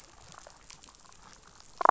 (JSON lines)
{"label": "biophony, damselfish", "recorder": "SoundTrap 500"}